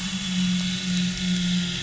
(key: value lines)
label: anthrophony, boat engine
recorder: SoundTrap 500